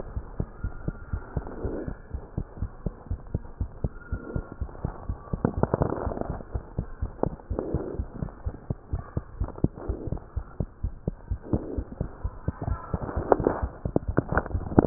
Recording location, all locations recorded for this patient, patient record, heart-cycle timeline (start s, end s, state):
pulmonary valve (PV)
aortic valve (AV)+pulmonary valve (PV)+tricuspid valve (TV)+mitral valve (MV)
#Age: Child
#Sex: Male
#Height: 82.0 cm
#Weight: 11.1 kg
#Pregnancy status: False
#Murmur: Absent
#Murmur locations: nan
#Most audible location: nan
#Systolic murmur timing: nan
#Systolic murmur shape: nan
#Systolic murmur grading: nan
#Systolic murmur pitch: nan
#Systolic murmur quality: nan
#Diastolic murmur timing: nan
#Diastolic murmur shape: nan
#Diastolic murmur grading: nan
#Diastolic murmur pitch: nan
#Diastolic murmur quality: nan
#Outcome: Abnormal
#Campaign: 2015 screening campaign
0.00	0.12	diastole
0.12	0.24	S1
0.24	0.36	systole
0.36	0.48	S2
0.48	0.61	diastole
0.61	0.71	S1
0.71	0.85	systole
0.85	0.94	S2
0.94	1.11	diastole
1.11	1.19	S1
1.19	1.33	systole
1.33	1.41	S2
1.41	1.62	diastole
1.62	1.74	S1
1.74	1.85	systole
1.85	1.98	S2
1.98	2.10	diastole
2.10	2.20	S1
2.20	2.35	systole
2.35	2.44	S2
2.44	2.58	diastole
2.58	2.70	S1
2.70	2.82	systole
2.82	2.94	S2
2.94	3.08	diastole
3.08	3.18	S1
3.18	3.32	systole
3.32	3.42	S2
3.42	3.56	diastole
3.56	3.72	S1
3.72	3.83	systole
3.83	3.89	S2
3.89	4.10	diastole
4.10	4.20	S1
4.20	4.32	systole
4.32	4.44	S2
4.44	4.60	diastole
4.60	4.68	S1
4.68	4.83	systole
4.83	4.92	S2
4.92	5.07	diastole
5.07	5.17	S1
5.17	5.31	systole
5.31	5.41	S2
5.41	5.56	diastole